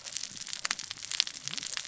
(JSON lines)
{"label": "biophony, cascading saw", "recorder": "SoundTrap 600 or HydroMoth"}